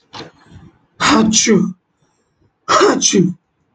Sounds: Sneeze